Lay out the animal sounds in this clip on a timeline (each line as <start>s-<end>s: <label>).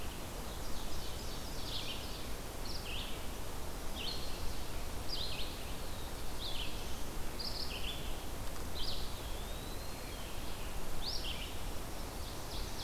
0.0s-12.8s: Red-eyed Vireo (Vireo olivaceus)
0.5s-2.4s: Ovenbird (Seiurus aurocapilla)
3.7s-4.7s: Chestnut-sided Warbler (Setophaga pensylvanica)
5.5s-7.2s: Black-throated Blue Warbler (Setophaga caerulescens)
8.8s-10.3s: Eastern Wood-Pewee (Contopus virens)
12.3s-12.8s: Ovenbird (Seiurus aurocapilla)